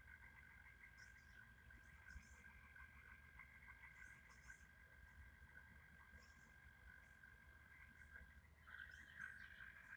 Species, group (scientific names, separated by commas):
Gryllotalpa gryllotalpa, Orthoptera